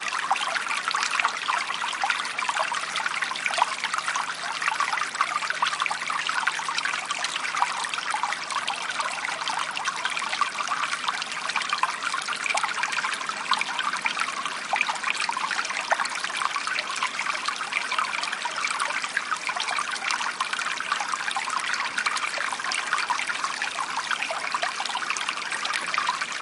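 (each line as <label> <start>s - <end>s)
Water flows through a river. 0.0s - 26.4s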